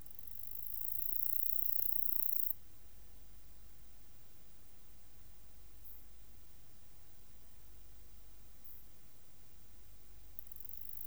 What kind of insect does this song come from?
orthopteran